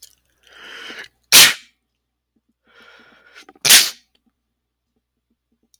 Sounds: Sneeze